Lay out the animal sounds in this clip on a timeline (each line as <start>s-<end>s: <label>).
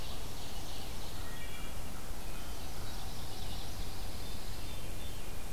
0.0s-1.3s: Ovenbird (Seiurus aurocapilla)
1.2s-1.8s: Wood Thrush (Hylocichla mustelina)
2.1s-2.6s: Wood Thrush (Hylocichla mustelina)
3.0s-4.8s: Pine Warbler (Setophaga pinus)
3.9s-5.5s: Veery (Catharus fuscescens)